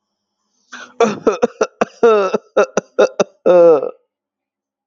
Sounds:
Cough